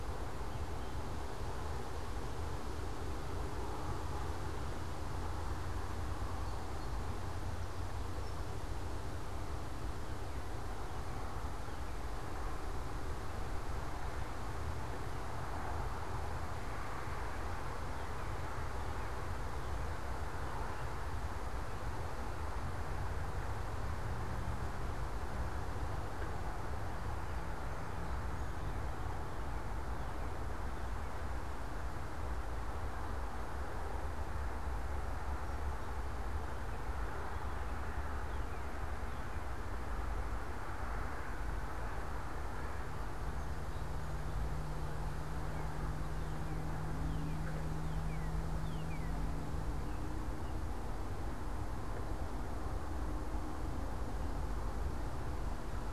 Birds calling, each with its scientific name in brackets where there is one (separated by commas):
Northern Cardinal (Cardinalis cardinalis), Song Sparrow (Melospiza melodia)